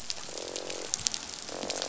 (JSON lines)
{"label": "biophony, croak", "recorder": "SoundTrap 500"}